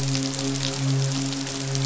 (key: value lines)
label: biophony, midshipman
recorder: SoundTrap 500